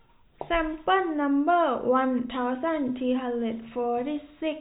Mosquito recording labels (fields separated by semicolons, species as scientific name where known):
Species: no mosquito; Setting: cup